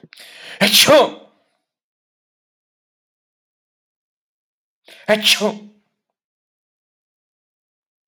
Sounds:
Sneeze